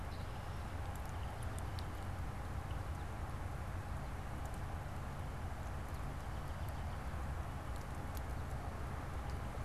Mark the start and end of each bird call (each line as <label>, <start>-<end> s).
Red-winged Blackbird (Agelaius phoeniceus), 0.0-1.0 s
American Robin (Turdus migratorius), 5.7-7.2 s